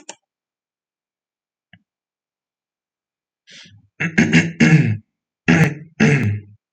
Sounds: Throat clearing